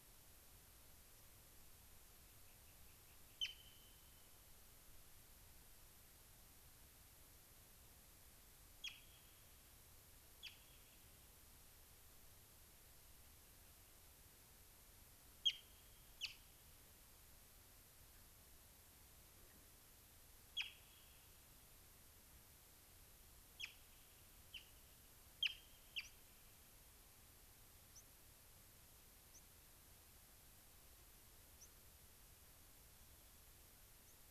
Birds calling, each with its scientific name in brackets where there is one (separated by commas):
Rock Wren (Salpinctes obsoletus), unidentified bird, White-crowned Sparrow (Zonotrichia leucophrys)